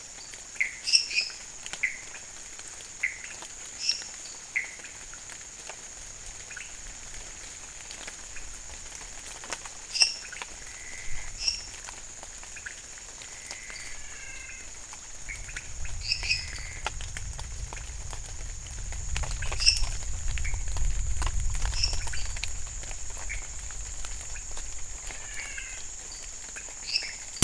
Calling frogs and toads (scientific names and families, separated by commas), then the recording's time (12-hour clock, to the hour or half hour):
Dendropsophus minutus (Hylidae), Leptodactylus podicipinus (Leptodactylidae), Pithecopus azureus (Hylidae), Physalaemus albonotatus (Leptodactylidae)
midnight